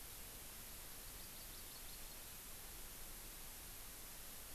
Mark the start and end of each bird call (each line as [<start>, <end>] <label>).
[1.05, 2.15] Hawaii Amakihi (Chlorodrepanis virens)